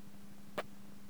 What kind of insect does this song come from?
orthopteran